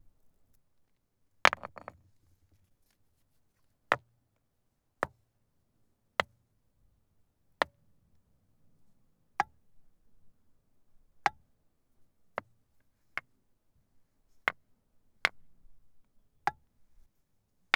is there traffic noise in the background?
no